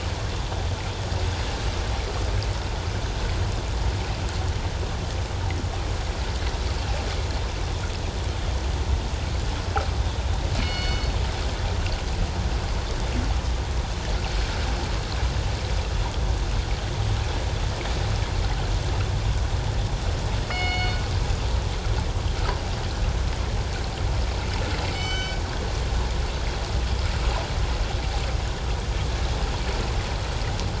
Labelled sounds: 10.6	11.1	killer whale, northern resident, G clan, 2.1 to 4.5 kHz
20.5	21.0	killer whale, northern resident, G clan, 2.1 to 6.6 kHz
24.9	25.4	killer whale, northern resident, G clan, 1.4 to 7.6 kHz

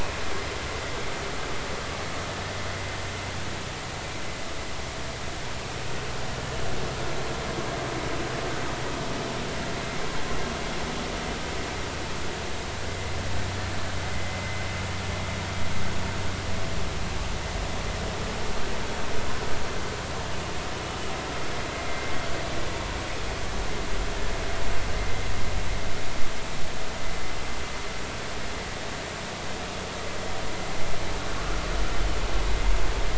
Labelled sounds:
14.1	14.6	vessel noise, 2.0 to 2.2 kHz
21.9	22.1	vessel noise, 2.0 to 2.2 kHz

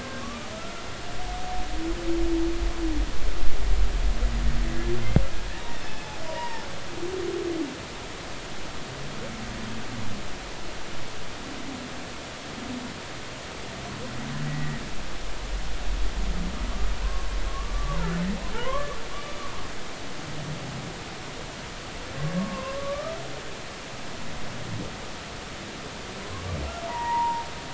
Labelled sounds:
0.2	0.5	humpback whale, 1.1 to 1.2 kHz
5.8	6.6	humpback whale, 0.86 to 2.7 kHz
14.5	14.8	humpback whale, 1.8 to 2.0 kHz
17.5	18.3	humpback whale, 0.83 to 1.2 kHz
18.5	19.0	humpback whale, 0.83 to 1.2 kHz
22.4	23.2	humpback whale, 0.96 to 1.3 kHz
26.9	27.5	humpback whale, 0.86 to 2.0 kHz

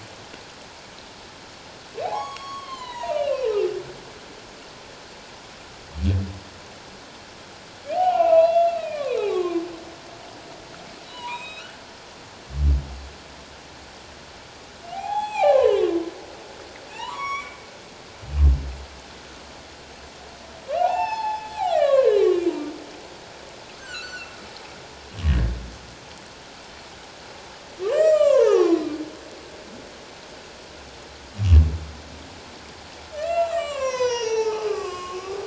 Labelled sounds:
2.0	3.5	humpback whale, 0.78 to 6.8 kHz
7.9	9.6	humpback whale, 0.78 to 4.1 kHz
11.1	11.8	humpback whale, 0.91 to 4.1 kHz
14.9	15.9	humpback whale, 0.78 to 7.8 kHz
16.9	17.6	humpback whale, 0.81 to 6.9 kHz
20.8	22.5	humpback whale, 0.78 to 5.4 kHz
23.8	24.3	humpback whale, 1.2 to 4.5 kHz
27.8	28.9	humpback whale, 0.78 to 7.7 kHz
33.2	35.4	humpback whale, 0.78 to 7.7 kHz

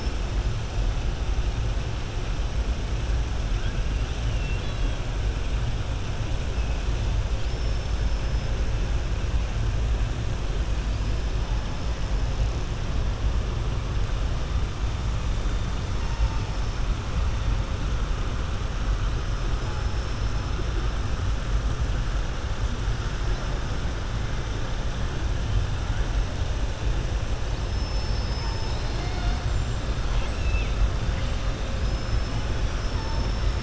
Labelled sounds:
4.2	5.0	killer whale, southern resident, 2.7 to 4.6 kHz
7.3	8.4	killer whale, southern resident, 4.1 to 6.3 kHz
15.9	16.4	killer whale, southern resident, 0.89 to 2.8 kHz
30.0	30.7	killer whale, southern resident, 2.1 to 4.3 kHz
31.7	33.6	killer whale, southern resident, 4.5 to 6.2 kHz

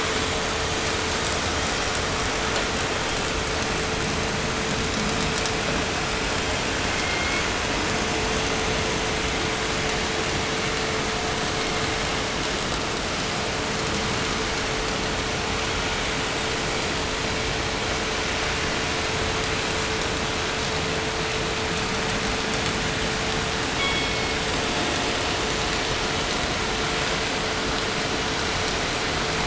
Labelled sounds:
6.3	7.7	killer whale, southern resident, 1.3 to 5.3 kHz
11.5	12.4	killer whale, southern resident, 1.7 to 3.8 kHz
23.6	24.7	killer whale, southern resident, call S16, 1.6 to 4.9 kHz

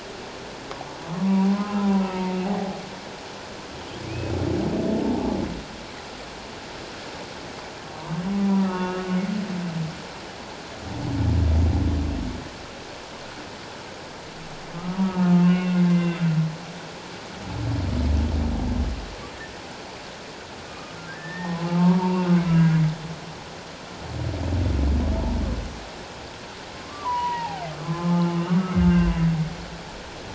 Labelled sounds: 1.2	2.4	humpback whale, 0.88 to 2.8 kHz
4.0	4.3	humpback whale, 2.2 to 2.6 kHz
8.4	9.0	humpback whale, 0.88 to 2.8 kHz
14.8	16.2	humpback whale, 1.0 to 2.8 kHz
20.7	22.5	humpback whale, 0.78 to 1.9 kHz
26.8	28.1	humpback whale, 0.78 to 3.0 kHz
28.5	29.1	humpback whale, 1.1 to 1.6 kHz

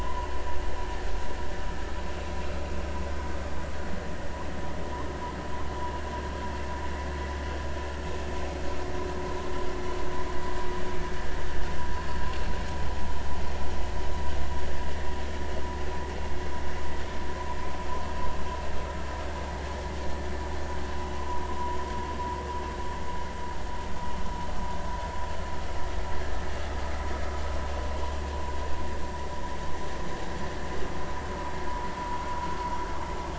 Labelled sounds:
1.7	2.0	vessel noise, 1.2 to 1.4 kHz

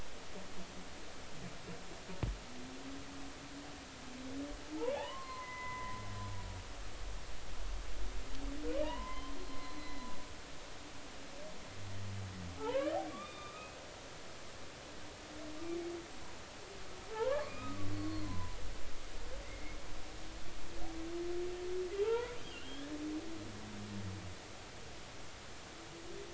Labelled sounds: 4.9	6.0	humpback whale, 0.80 to 3.0 kHz
8.8	9.3	humpback whale, 0.86 to 3.2 kHz
9.8	10.6	humpback whale, 2.0 to 4.2 kHz
12.6	13.7	humpback whale, 0.80 to 3.7 kHz
17.1	18.6	humpback whale, 0.80 to 4.4 kHz
19.4	19.8	humpback whale, 2.0 to 2.3 kHz
21.9	22.9	humpback whale, 0.80 to 3.6 kHz

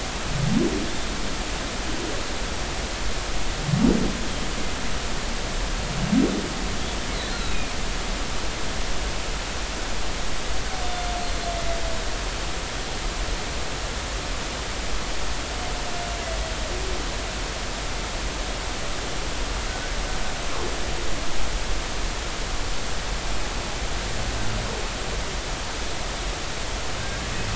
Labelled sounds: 7.4	7.7	humpback whale, 2.4 to 4.0 kHz
10.8	11.1	humpback whale, 3.5 to 3.6 kHz
27.0	27.2	humpback whale, 1.5 to 1.7 kHz

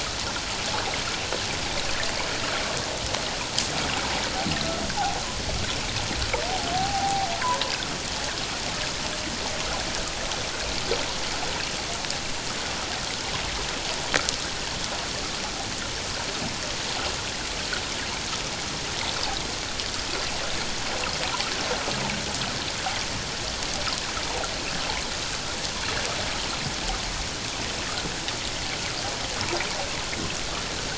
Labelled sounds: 6.7	7.3	humpback whale, 0.78 to 0.88 kHz

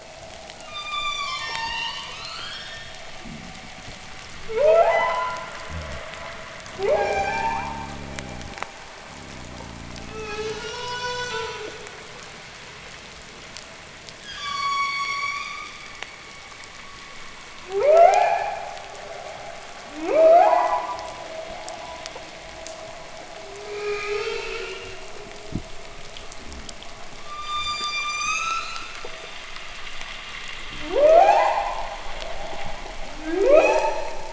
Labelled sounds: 0.4	3.0	humpback whale, ascending moan, 0.78 to 8.0 kHz
3.1	3.5	fish, groan, 0.01 to 0.37 kHz
4.3	5.5	humpback whale, upsweep, 0.33 to 4.1 kHz
5.5	6.1	fish, groan, 0.03 to 0.33 kHz
6.5	7.8	humpback whale, upsweep, 0.27 to 8.0 kHz
6.8	8.6	fish, groan, 0.02 to 0.41 kHz
9.0	10.6	fish, groan, 0.01 to 0.49 kHz
9.8	12.0	humpback whale, moan, 0.20 to 8.0 kHz
14.2	15.9	humpback whale, ascending moan, 0.95 to 8.0 kHz
17.5	18.9	humpback whale, upsweep, 0.29 to 3.1 kHz
19.7	21.2	humpback whale, upsweep, 0.22 to 2.8 kHz
23.2	25.1	humpback whale, moan, 0.28 to 7.6 kHz
25.4	25.7	fish, knock, 0.03 to 0.42 kHz
26.2	26.8	fish, groan, 0.03 to 0.48 kHz
27.1	28.9	humpback whale, ascending moan, 1.1 to 8.0 kHz
30.5	31.0	fish, groan, 0.05 to 0.33 kHz
30.6	32.1	humpback whale, upsweep, 0.21 to 8.0 kHz
32.5	32.8	fish, knock, 0.02 to 0.28 kHz
33.0	34.3	humpback whale, upsweep, 0.14 to 8.0 kHz

